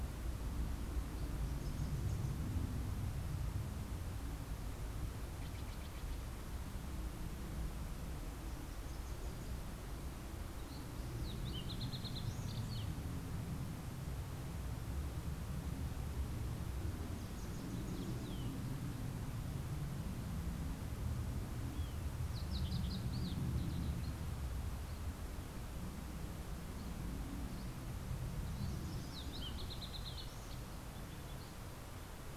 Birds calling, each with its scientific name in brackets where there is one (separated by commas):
Fox Sparrow (Passerella iliaca), Steller's Jay (Cyanocitta stelleri), Wilson's Warbler (Cardellina pusilla)